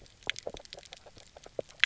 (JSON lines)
{"label": "biophony, grazing", "recorder": "SoundTrap 300"}